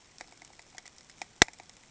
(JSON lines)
{"label": "ambient", "recorder": "HydroMoth"}